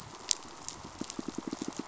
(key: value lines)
label: biophony, pulse
recorder: SoundTrap 500